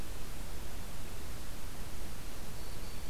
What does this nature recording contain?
Black-throated Green Warbler